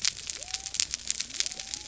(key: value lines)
label: biophony
recorder: SoundTrap 300